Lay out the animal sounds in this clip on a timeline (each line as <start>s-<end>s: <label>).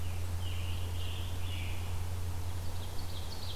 0.0s-1.8s: Scarlet Tanager (Piranga olivacea)
2.5s-3.6s: Ovenbird (Seiurus aurocapilla)